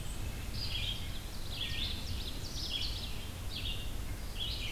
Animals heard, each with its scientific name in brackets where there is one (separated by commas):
White-breasted Nuthatch (Sitta carolinensis), Ovenbird (Seiurus aurocapilla), Red-eyed Vireo (Vireo olivaceus)